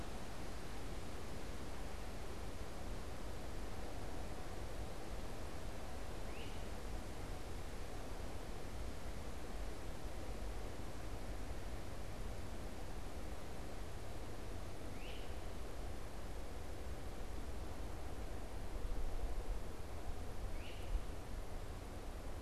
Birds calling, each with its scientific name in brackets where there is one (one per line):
Great Crested Flycatcher (Myiarchus crinitus)